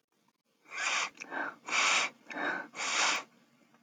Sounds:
Sniff